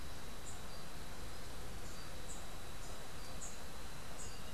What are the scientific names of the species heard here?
Basileuterus rufifrons